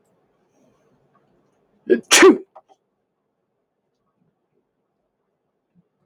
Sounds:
Sneeze